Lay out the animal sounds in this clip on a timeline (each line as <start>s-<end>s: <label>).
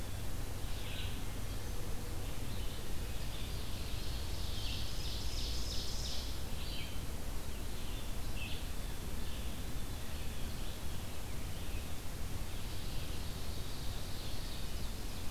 0.0s-4.9s: Red-eyed Vireo (Vireo olivaceus)
3.5s-6.2s: Ovenbird (Seiurus aurocapilla)
6.3s-15.3s: Red-eyed Vireo (Vireo olivaceus)
12.5s-15.3s: Ovenbird (Seiurus aurocapilla)